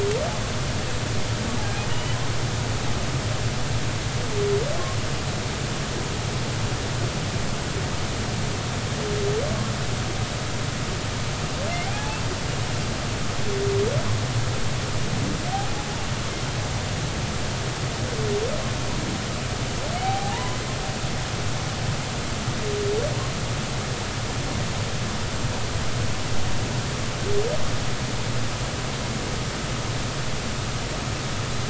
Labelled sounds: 1.9	2.2	humpback whale, 2.8 to 3.0 kHz
11.9	12.2	humpback whale, 0.80 to 0.93 kHz
20.0	20.6	humpback whale, 0.80 to 1.1 kHz

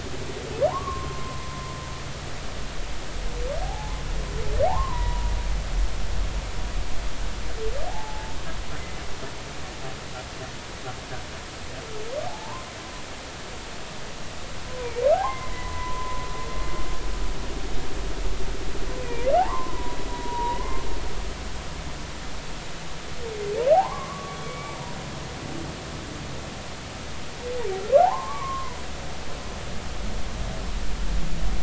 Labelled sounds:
0.7	1.5	humpback whale, 0.80 to 1.2 kHz
3.6	4.0	humpback whale, 0.80 to 1.1 kHz
4.6	5.3	humpback whale, 0.80 to 1.2 kHz
7.9	8.4	humpback whale, 0.80 to 0.93 kHz
12.3	12.7	humpback whale, 0.80 to 1.1 kHz
14.7	16.2	humpback whale, 0.80 to 2.2 kHz
19.0	20.8	humpback whale, 0.80 to 2.6 kHz
23.7	24.8	humpback whale, 0.80 to 2.4 kHz
28.0	28.8	humpback whale, 0.80 to 1.2 kHz

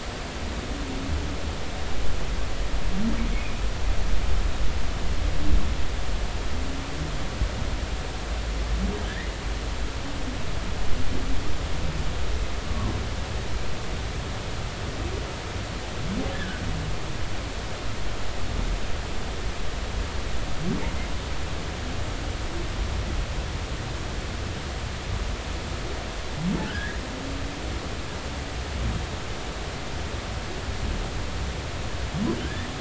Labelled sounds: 3.4	3.6	humpback whale, 2.3 to 2.6 kHz
9.1	9.3	humpback whale, 1.5 to 2.1 kHz
16.3	16.6	humpback whale, 1.4 to 1.8 kHz
26.7	27.0	humpback whale, 1.4 to 2.0 kHz
32.4	32.7	humpback whale, 1.5 to 2.0 kHz

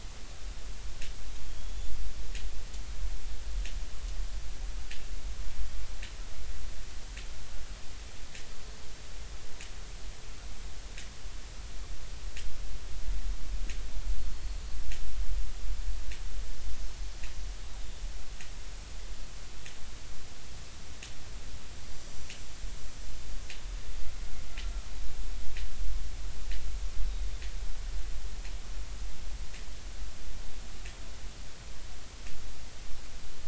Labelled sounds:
1.5	2.0	killer whale, Bigg's (transient), 3.2 to 7.0 kHz
17.8	18.0	killer whale, Bigg's (transient), 3.5 to 3.8 kHz

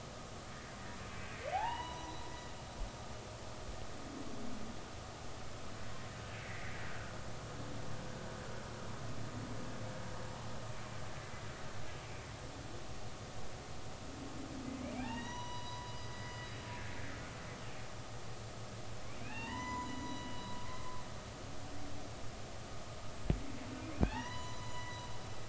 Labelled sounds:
1.5	2.1	humpback whale, 0.80 to 4.0 kHz
6.4	6.7	humpback whale, 1.9 to 2.3 kHz
11.2	11.5	humpback whale, 2.0 to 2.1 kHz
15.0	16.4	humpback whale, 0.80 to 5.9 kHz
19.2	21.0	humpback whale, 0.83 to 7.1 kHz
24.0	25.0	humpback whale, 0.80 to 7.0 kHz

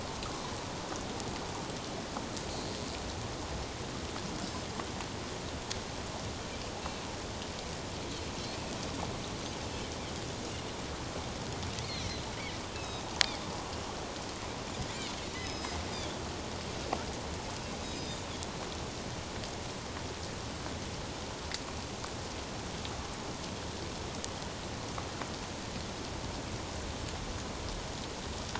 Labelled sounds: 12.7	13.0	Pacific white-sided dolphin, 2.5 to 5.3 kHz
15.4	16.2	Pacific white-sided dolphin, 3.2 to 5.2 kHz
17.8	18.2	Pacific white-sided dolphin, 3.6 to 5.1 kHz

